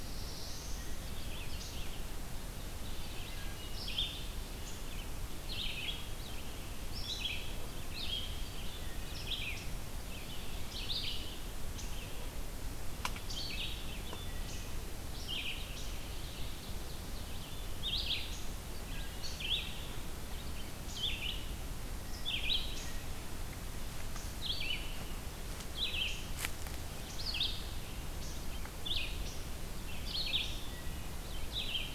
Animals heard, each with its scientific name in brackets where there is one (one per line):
Ovenbird (Seiurus aurocapilla)
Black-throated Blue Warbler (Setophaga caerulescens)
Wood Thrush (Hylocichla mustelina)
Red-eyed Vireo (Vireo olivaceus)